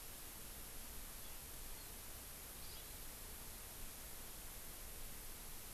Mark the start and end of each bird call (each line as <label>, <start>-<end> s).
Hawaii Amakihi (Chlorodrepanis virens), 2.6-3.0 s